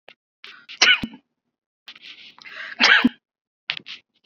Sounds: Sneeze